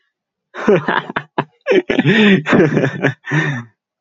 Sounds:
Laughter